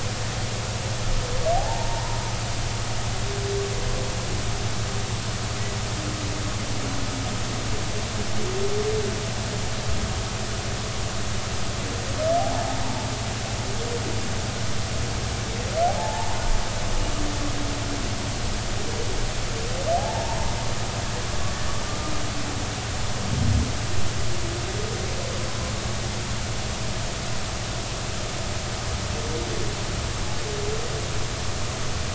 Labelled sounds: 1.6	2.2	humpback whale, 0.80 to 1.0 kHz
12.4	12.8	humpback whale, 0.80 to 0.96 kHz
16.0	16.4	humpback whale, 0.80 to 1.0 kHz
20.0	20.4	humpback whale, 0.80 to 1.1 kHz

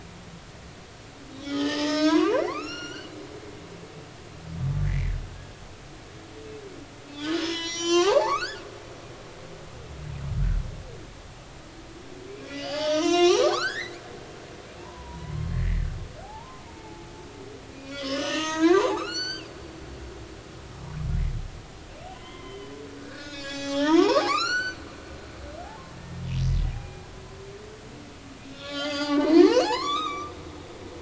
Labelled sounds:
1.4	3.1	humpback whale, 0.83 to 7.2 kHz
4.9	5.6	humpback whale, 1.6 to 2.4 kHz
7.1	8.6	humpback whale, 0.80 to 8.0 kHz
12.3	14.5	humpback whale, 0.80 to 7.7 kHz
14.8	17.1	humpback whale, 0.80 to 2.2 kHz
17.7	19.8	humpback whale, 0.80 to 7.8 kHz
22.1	24.8	humpback whale, 0.80 to 7.6 kHz
26.7	27.0	humpback whale, 0.80 to 2.5 kHz
28.4	30.3	humpback whale, 0.80 to 6.9 kHz

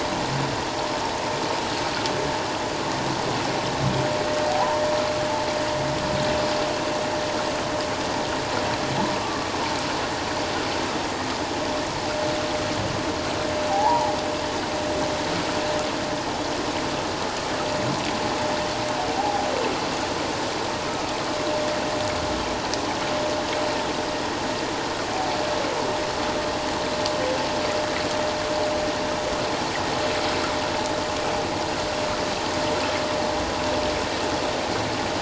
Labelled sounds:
4.5	4.8	humpback whale, 0.78 to 1.1 kHz
9.2	9.5	humpback whale, 1.1 to 1.2 kHz
13.7	14.1	humpback whale, 0.78 to 1.0 kHz
19.1	19.5	humpback whale, 0.78 to 0.94 kHz

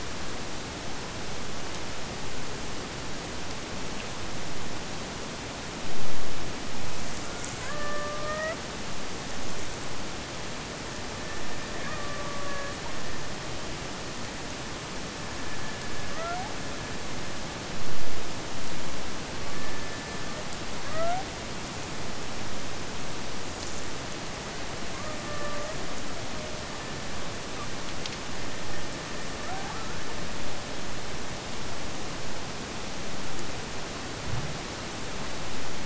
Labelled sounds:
7.2	8.7	killer whale, Bigg's (transient), AT1 transient, 0.51 to 3.1 kHz
11.0	13.4	killer whale, Bigg's (transient), AT1 transient, 0.42 to 2.6 kHz
15.0	17.8	killer whale, Bigg's (transient), AT1 transient, 0.53 to 2.6 kHz
19.3	21.3	killer whale, Bigg's (transient), AT1 transient, 0.59 to 2.3 kHz
24.9	27.8	killer whale, Bigg's (transient), AT1 transient, 0.38 to 2.1 kHz
28.3	31.5	killer whale, Bigg's (transient), AT1 transient, 0.41 to 2.0 kHz

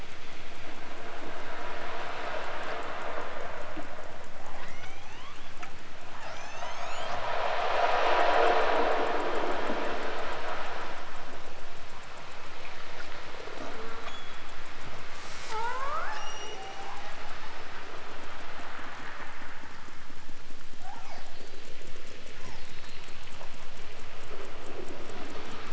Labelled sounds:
4.4	5.6	killer whale, southern Alaska resident, 0.32 to 7.0 kHz
6.0	7.2	killer whale, southern Alaska resident, 0.60 to 8.0 kHz
13.5	14.5	killer whale, southern Alaska resident, 0.23 to 7.0 kHz
15.4	16.8	killer whale, southern Alaska resident, 0.28 to 8.0 kHz
20.7	21.8	killer whale, southern Alaska resident, 0.41 to 6.3 kHz
22.3	23.4	killer whale, southern Alaska resident, 0.55 to 6.0 kHz

